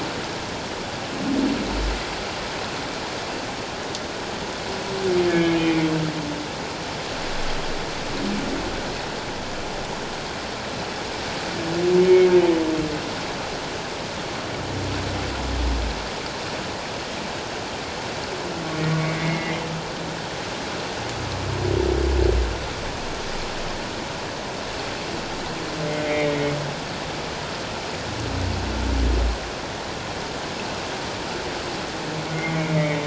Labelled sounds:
5.3	5.8	humpback whale, 1.6 to 2.5 kHz
12.0	12.3	humpback whale, 2.1 to 2.2 kHz
19.0	19.6	humpback whale, 1.9 to 2.3 kHz
25.9	26.6	humpback whale, 1.8 to 2.3 kHz
32.6	33.0	humpback whale, 1.9 to 2.2 kHz

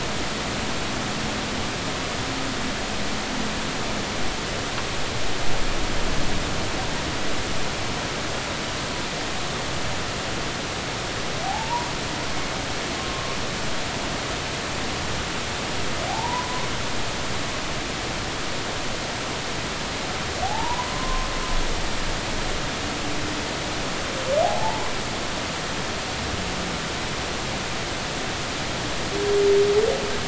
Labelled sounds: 11.4	11.9	humpback whale, 0.80 to 1.1 kHz
12.9	13.4	humpback whale, 1.0 to 1.2 kHz
16.1	16.7	humpback whale, 0.80 to 1.1 kHz
20.4	21.3	humpback whale, 0.80 to 1.1 kHz
24.4	24.8	humpback whale, 0.80 to 0.99 kHz

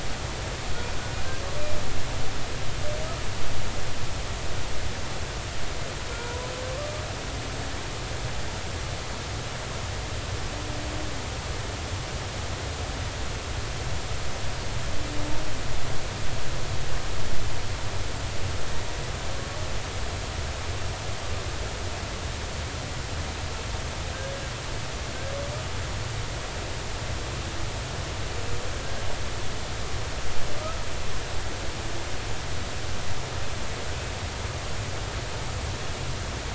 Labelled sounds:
6.1	6.5	humpback whale, 0.93 to 1.5 kHz

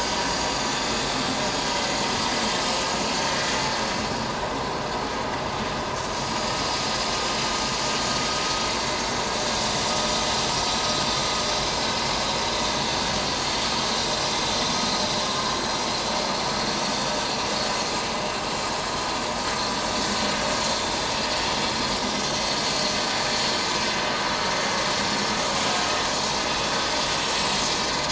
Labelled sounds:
21.4	21.7	vessel noise, 3.1 to 3.3 kHz
21.9	22.3	vessel noise, 5.4 to 5.7 kHz

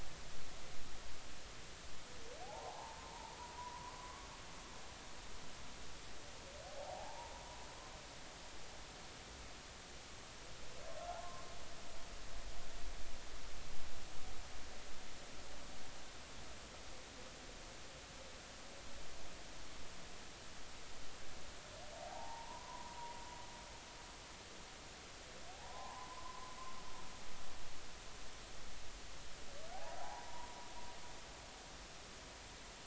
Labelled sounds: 2.4	3.9	humpback whale, 0.80 to 1.1 kHz
6.8	7.3	humpback whale, 0.80 to 0.99 kHz
11.2	11.5	humpback whale, 0.99 to 1.1 kHz
22.0	23.0	humpback whale, 0.80 to 1.2 kHz
25.5	26.5	humpback whale, 0.80 to 1.2 kHz
29.7	30.5	humpback whale, 0.80 to 1.1 kHz

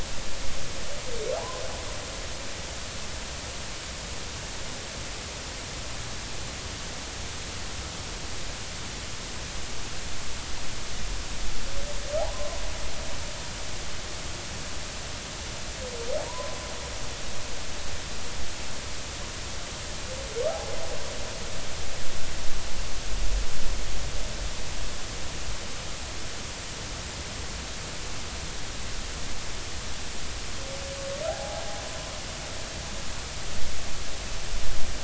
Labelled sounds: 1.4	1.6	humpback whale, 0.80 to 1.1 kHz
12.2	12.5	humpback whale, 0.80 to 1.1 kHz
16.3	16.6	humpback whale, 0.90 to 1.1 kHz
20.5	20.8	humpback whale, 0.80 to 0.86 kHz
31.3	31.6	humpback whale, 0.80 to 0.90 kHz

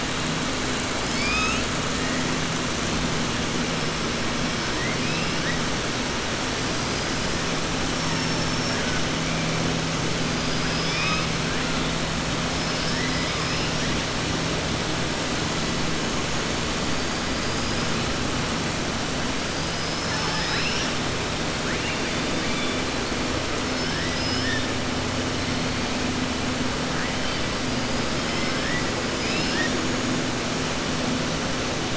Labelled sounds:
1.0	1.7	killer whale, southern resident, 1.3 to 7.6 kHz
4.7	5.3	killer whale, southern resident, 1.9 to 2.8 kHz
7.9	8.8	killer whale, southern resident, 5.3 to 6.4 kHz
10.2	11.3	killer whale, southern resident, 1.2 to 5.9 kHz
28.2	28.9	killer whale, southern resident, 1.4 to 3.1 kHz
29.3	29.7	killer whale, southern resident, 1.6 to 5.8 kHz

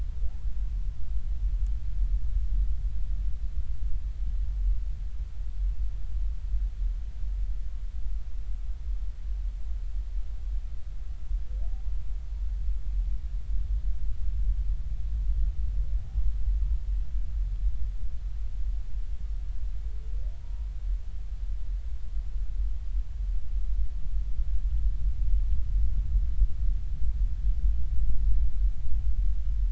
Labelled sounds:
20.4	20.7	humpback whale, 0.90 to 0.99 kHz

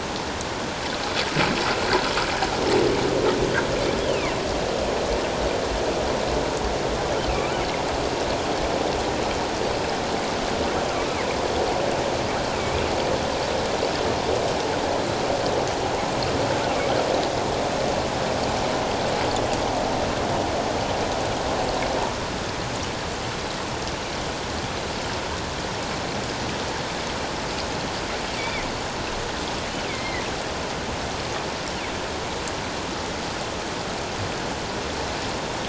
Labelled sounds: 4.1	4.3	killer whale, northern resident, 2.0 to 3.2 kHz
7.3	7.6	killer whale, northern resident, 1.1 to 1.5 kHz
12.6	12.8	killer whale, northern resident, 2.2 to 2.5 kHz
28.4	28.7	killer whale, northern resident, 1.9 to 2.4 kHz
29.9	30.2	killer whale, northern resident, 1.9 to 2.3 kHz

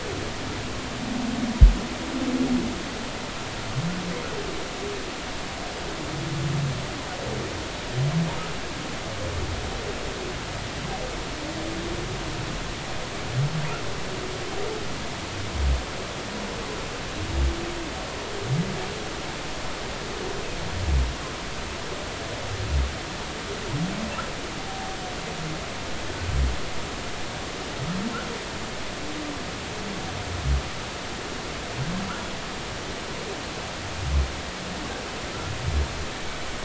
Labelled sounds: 24.7	25.0	humpback whale, 0.80 to 0.93 kHz

